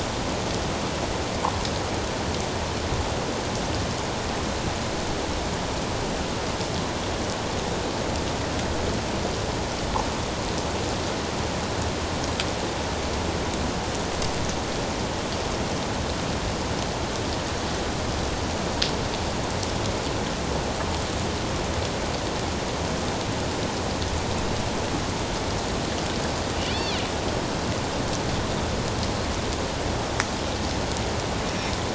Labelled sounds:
26.7	27.0	killer whale, northern resident, A clan, AB subclan, call N20, 3.3 to 4.6 kHz

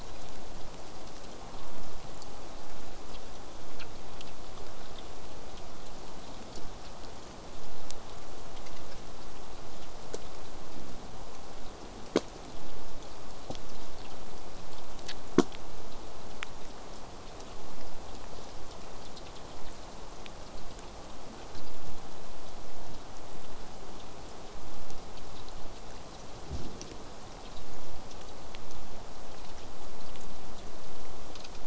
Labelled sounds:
1.3	2.0	killer whale, southern resident, J pod, call S04, 0.16 to 1.4 kHz

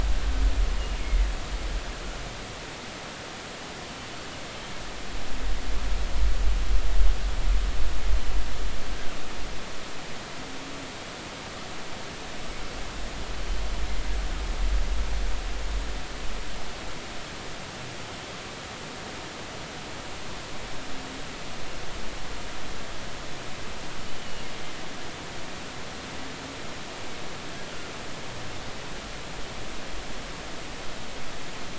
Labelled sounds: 4.5	4.7	killer whale, northern resident, G clan, GG subclan, 3.1 to 3.2 kHz

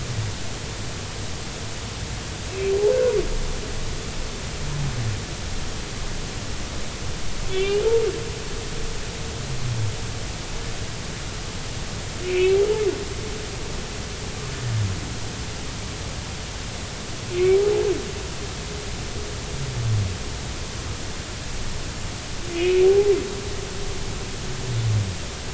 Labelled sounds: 7.5	7.8	humpback whale, 2.2 to 3.6 kHz
12.2	12.6	humpback whale, 2.1 to 2.8 kHz
17.3	17.6	humpback whale, 2.1 to 2.3 kHz
22.5	23.1	humpback whale, 0.80 to 2.6 kHz

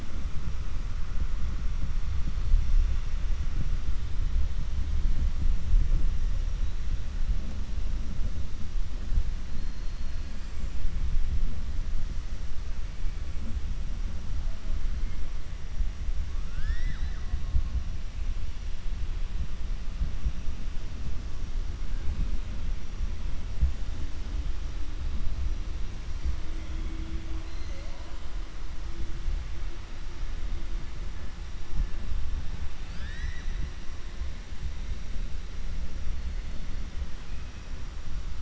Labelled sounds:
32.8	33.7	killer whale, 1.3 to 7.7 kHz

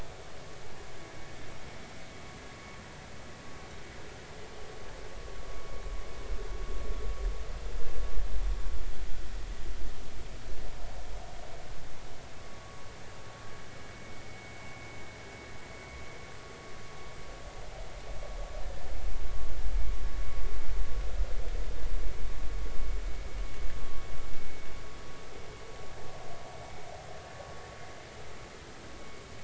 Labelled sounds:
13.9	14.2	vessel noise, 2.2 to 2.3 kHz

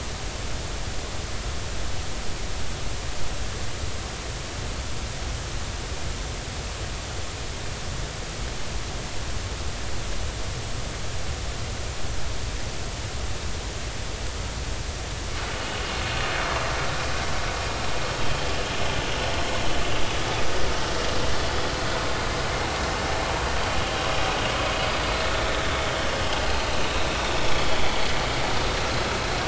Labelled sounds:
26.5	28.0	vessel noise, 3.1 to 4.3 kHz

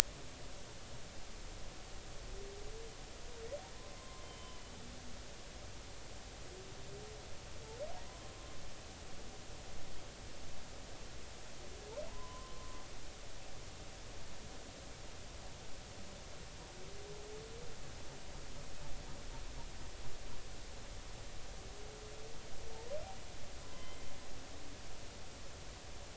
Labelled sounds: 3.8	4.7	humpback whale, 0.99 to 3.2 kHz
12.1	12.8	humpback whale, 0.86 to 1.1 kHz
23.6	24.0	humpback whale, 0.99 to 3.2 kHz

